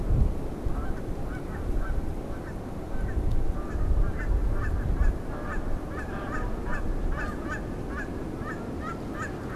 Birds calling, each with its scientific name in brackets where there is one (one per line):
Canada Goose (Branta canadensis)